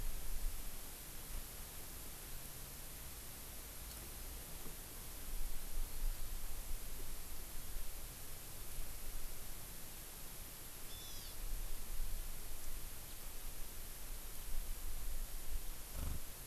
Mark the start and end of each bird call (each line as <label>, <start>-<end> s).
Hawaii Amakihi (Chlorodrepanis virens), 10.8-11.3 s